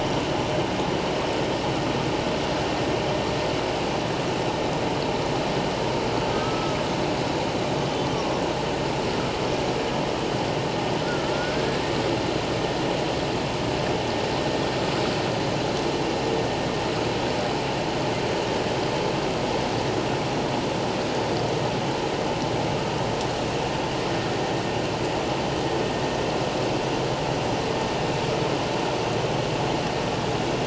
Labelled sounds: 6.3	6.8	killer whale, 1.2 to 1.4 kHz
8.1	8.4	killer whale, 1.0 to 1.2 kHz
11.0	11.8	killer whale, 1.3 to 1.8 kHz

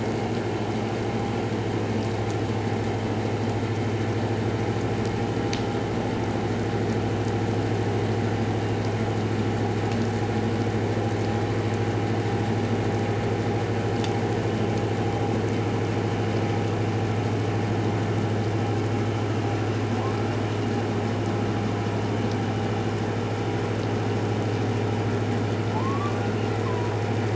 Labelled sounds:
25.7	26.9	humpback whale, 0.81 to 1.2 kHz

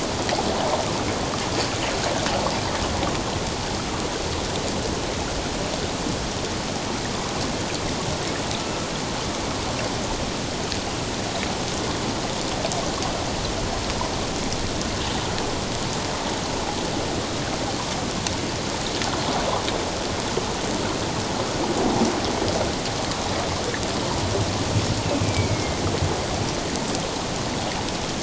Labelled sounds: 25.1	25.8	killer whale, northern resident, A clan, AA subclan, 2.0 to 2.8 kHz

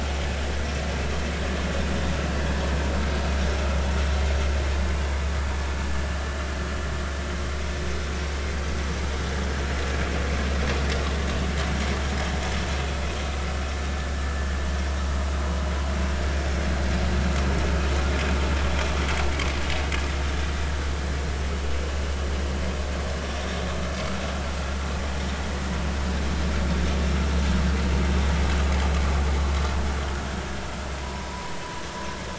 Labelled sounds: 31.0	31.6	vessel noise, 0.93 to 1.1 kHz

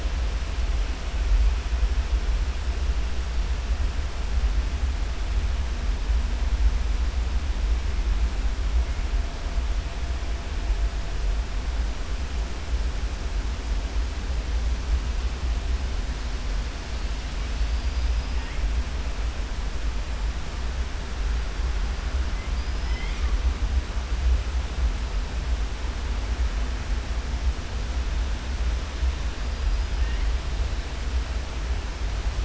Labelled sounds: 17.5	18.4	killer whale, southern resident, 4.3 to 5.3 kHz
22.5	23.3	killer whale, southern resident, 1.2 to 5.7 kHz

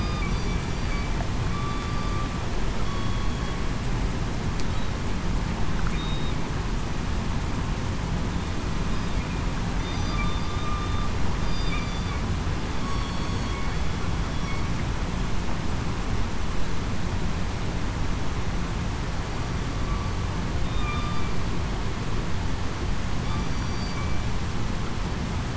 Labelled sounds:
1.5	1.8	killer whale, southern resident, 1.1 to 1.2 kHz
2.8	3.4	killer whale, southern resident, 1.1 to 3.4 kHz
5.9	6.3	killer whale, southern resident, 3.7 to 3.8 kHz
9.8	10.6	killer whale, southern resident, 3.5 to 4.9 kHz
11.8	12.1	killer whale, southern resident, 4.6 to 4.7 kHz
12.8	13.5	killer whale, southern resident, 4.4 to 4.5 kHz
20.7	21.1	killer whale, southern resident, 2.3 to 2.5 kHz
23.4	23.9	killer whale, southern resident, 4.6 to 4.7 kHz

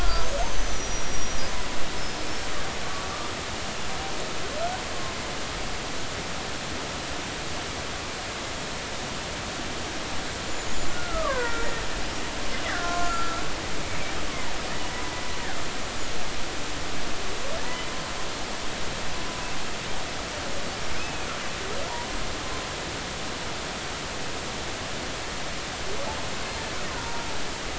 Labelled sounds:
0.0	1.4	killer whale, Bigg's (transient), 1.2 to 6.5 kHz
1.9	3.1	killer whale, Bigg's (transient), 1.1 to 5.3 kHz
10.5	11.7	killer whale, Bigg's (transient), 0.90 to 7.2 kHz
12.6	13.4	killer whale, Bigg's (transient), 0.99 to 2.1 kHz
14.3	14.5	killer whale, Bigg's (transient), 0.86 to 1.2 kHz
21.0	21.3	killer whale, Bigg's (transient), 2.4 to 2.7 kHz
27.0	27.2	killer whale, Bigg's (transient), 0.90 to 0.99 kHz

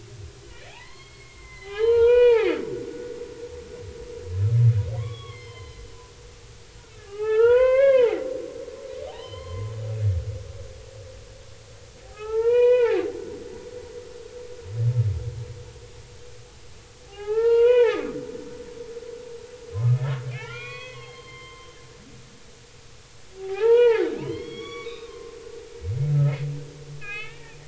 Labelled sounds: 0.7	2.5	humpback whale, 0.80 to 4.5 kHz
5.0	5.9	humpback whale, 0.93 to 4.3 kHz
7.0	8.2	humpback whale, 0.80 to 3.4 kHz
9.1	9.7	humpback whale, 0.80 to 4.3 kHz
12.0	13.0	humpback whale, 0.80 to 4.0 kHz
17.1	18.2	humpback whale, 0.80 to 4.3 kHz
20.3	21.8	humpback whale, 0.80 to 4.5 kHz
23.4	25.4	humpback whale, 0.80 to 5.7 kHz
27.0	27.6	humpback whale, 1.2 to 3.6 kHz

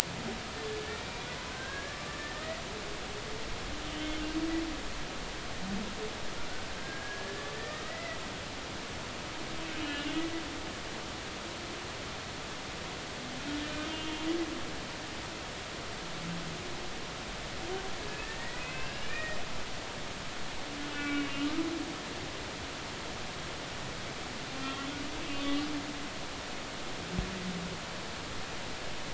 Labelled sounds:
0.8	2.2	humpback whale, 1.1 to 2.4 kHz
3.8	4.2	humpback whale, 3.0 to 3.1 kHz
6.7	8.2	humpback whale, 1.6 to 2.1 kHz
9.8	10.1	humpback whale, 2.8 to 3.0 kHz
13.8	14.3	humpback whale, 2.8 to 3.2 kHz
18.1	19.4	humpback whale, 1.5 to 2.9 kHz
20.0	21.3	humpback whale, 1.4 to 2.7 kHz
24.6	25.6	humpback whale, 1.1 to 3.2 kHz

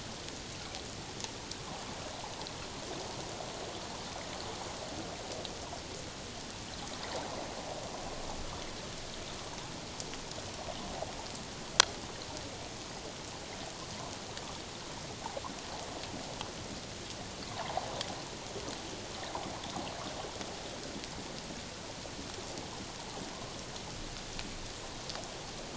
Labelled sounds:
17.5	17.8	water noise, 0.78 to 1.2 kHz

